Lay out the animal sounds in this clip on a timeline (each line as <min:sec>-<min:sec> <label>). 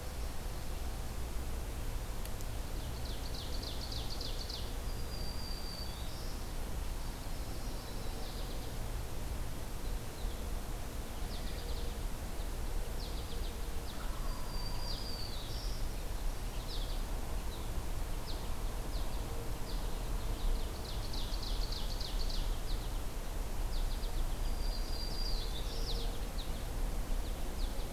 0:02.7-0:04.8 Ovenbird (Seiurus aurocapilla)
0:04.8-0:06.4 Black-throated Green Warbler (Setophaga virens)
0:07.1-0:08.8 American Goldfinch (Spinus tristis)
0:11.1-0:11.9 American Goldfinch (Spinus tristis)
0:12.8-0:13.6 American Goldfinch (Spinus tristis)
0:13.8-0:14.9 Wild Turkey (Meleagris gallopavo)
0:14.2-0:15.9 Black-throated Green Warbler (Setophaga virens)
0:14.7-0:15.2 American Goldfinch (Spinus tristis)
0:16.5-0:17.0 American Goldfinch (Spinus tristis)
0:18.1-0:19.2 American Goldfinch (Spinus tristis)
0:19.5-0:20.0 American Goldfinch (Spinus tristis)
0:20.2-0:22.5 Ovenbird (Seiurus aurocapilla)
0:22.4-0:23.1 American Goldfinch (Spinus tristis)
0:23.5-0:24.5 American Goldfinch (Spinus tristis)
0:24.4-0:25.9 Black-throated Green Warbler (Setophaga virens)
0:24.9-0:26.7 American Goldfinch (Spinus tristis)
0:27.4-0:27.9 American Goldfinch (Spinus tristis)